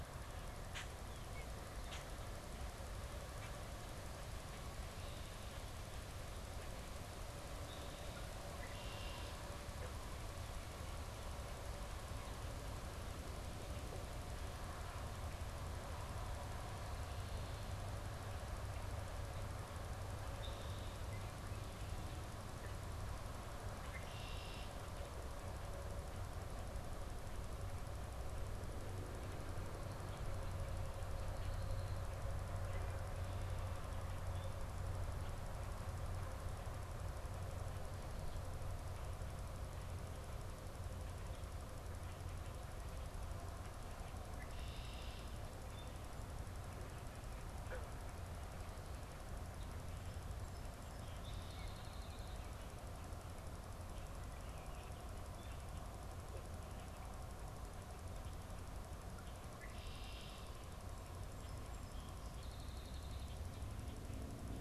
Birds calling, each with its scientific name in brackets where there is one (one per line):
Song Sparrow (Melospiza melodia)
Red-winged Blackbird (Agelaius phoeniceus)
Common Grackle (Quiscalus quiscula)